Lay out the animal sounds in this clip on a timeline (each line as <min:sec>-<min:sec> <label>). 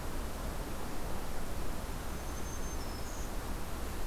0:02.0-0:03.6 Black-throated Green Warbler (Setophaga virens)